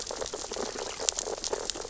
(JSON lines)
{"label": "biophony, sea urchins (Echinidae)", "recorder": "SoundTrap 600 or HydroMoth"}